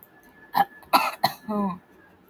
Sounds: Throat clearing